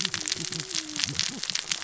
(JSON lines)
{"label": "biophony, cascading saw", "recorder": "SoundTrap 600 or HydroMoth"}